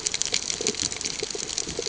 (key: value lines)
label: ambient
recorder: HydroMoth